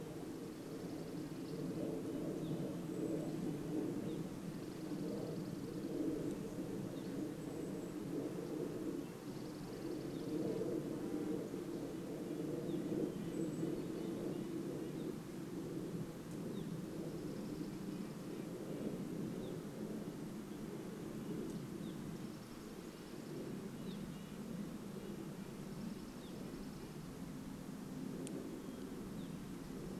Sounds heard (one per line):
Red-breasted Nuthatch song
Dark-eyed Junco song
airplane
insect buzz
Evening Grosbeak call
Golden-crowned Kinglet call
unidentified sound